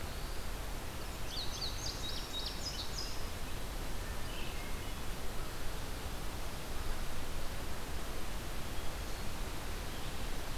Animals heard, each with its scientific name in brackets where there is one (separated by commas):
Indigo Bunting (Passerina cyanea), Red-eyed Vireo (Vireo olivaceus), Hermit Thrush (Catharus guttatus)